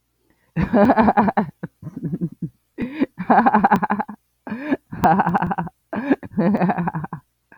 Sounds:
Laughter